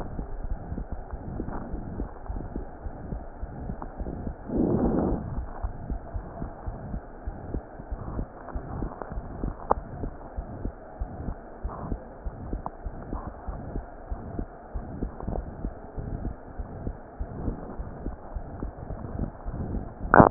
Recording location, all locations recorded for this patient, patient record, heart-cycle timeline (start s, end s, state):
pulmonary valve (PV)
aortic valve (AV)+pulmonary valve (PV)+tricuspid valve (TV)+mitral valve (MV)
#Age: Child
#Sex: Female
#Height: 112.0 cm
#Weight: 21.8 kg
#Pregnancy status: False
#Murmur: Present
#Murmur locations: aortic valve (AV)+mitral valve (MV)+pulmonary valve (PV)+tricuspid valve (TV)
#Most audible location: tricuspid valve (TV)
#Systolic murmur timing: Holosystolic
#Systolic murmur shape: Plateau
#Systolic murmur grading: III/VI or higher
#Systolic murmur pitch: High
#Systolic murmur quality: Harsh
#Diastolic murmur timing: nan
#Diastolic murmur shape: nan
#Diastolic murmur grading: nan
#Diastolic murmur pitch: nan
#Diastolic murmur quality: nan
#Outcome: Abnormal
#Campaign: 2015 screening campaign
0.00	2.62	unannotated
2.62	2.82	diastole
2.82	2.92	S1
2.92	3.08	systole
3.08	3.20	S2
3.20	3.40	diastole
3.40	3.50	S1
3.50	3.64	systole
3.64	3.76	S2
3.76	3.98	diastole
3.98	4.12	S1
4.12	4.24	systole
4.24	4.36	S2
4.36	4.54	diastole
4.54	4.68	S1
4.68	4.76	systole
4.76	4.90	S2
4.90	5.08	diastole
5.08	5.24	S1
5.24	5.32	systole
5.32	5.46	S2
5.46	5.64	diastole
5.64	5.76	S1
5.76	5.88	systole
5.88	6.00	S2
6.00	6.14	diastole
6.14	6.28	S1
6.28	6.40	systole
6.40	6.48	S2
6.48	6.64	diastole
6.64	6.80	S1
6.80	6.91	systole
6.91	7.04	S2
7.04	7.24	diastole
7.24	7.36	S1
7.36	7.50	systole
7.50	7.64	S2
7.64	7.86	diastole
7.86	8.00	S1
8.00	8.12	systole
8.12	8.26	S2
8.26	8.50	diastole
8.50	8.64	S1
8.64	8.78	systole
8.78	8.92	S2
8.92	9.13	diastole
9.13	9.26	S1
9.26	9.40	systole
9.40	9.54	S2
9.54	9.72	diastole
9.72	9.84	S1
9.84	10.00	systole
10.00	10.14	S2
10.14	10.36	diastole
10.36	10.50	S1
10.50	10.62	systole
10.62	10.76	S2
10.76	11.00	diastole
11.00	11.14	S1
11.14	11.26	systole
11.26	11.36	S2
11.36	11.62	diastole
11.62	11.74	S1
11.74	11.90	systole
11.90	12.00	S2
12.00	12.24	diastole
12.24	12.36	S1
12.36	12.48	systole
12.48	12.62	S2
12.62	12.84	diastole
12.84	12.94	S1
12.94	13.10	systole
13.10	13.22	S2
13.22	13.46	diastole
13.46	13.60	S1
13.60	13.72	systole
13.72	13.86	S2
13.86	14.10	diastole
14.10	14.20	S1
14.20	14.38	systole
14.38	14.50	S2
14.50	14.74	diastole
14.74	14.88	S1
14.88	14.98	systole
14.98	15.12	S2
15.12	15.34	diastole
15.34	15.48	S1
15.48	15.64	systole
15.64	15.76	S2
15.76	15.98	diastole
15.98	16.08	S1
16.08	16.22	systole
16.22	16.34	S2
16.34	16.58	diastole
16.58	16.68	S1
16.68	16.82	systole
16.82	16.96	S2
16.96	17.16	diastole
17.16	17.34	S1
17.34	17.44	systole
17.44	17.58	S2
17.58	17.78	diastole
17.78	17.92	S1
17.92	18.04	systole
18.04	18.16	S2
18.16	18.36	diastole
18.36	18.46	S1
18.46	18.58	systole
18.58	18.69	S2
18.69	18.72	diastole
18.72	20.30	unannotated